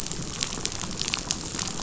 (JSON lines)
{"label": "biophony, chatter", "recorder": "SoundTrap 500"}